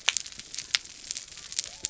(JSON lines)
{"label": "biophony", "recorder": "SoundTrap 300"}